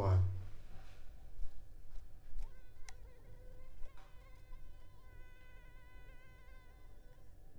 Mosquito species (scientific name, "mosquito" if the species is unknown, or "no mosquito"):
Culex pipiens complex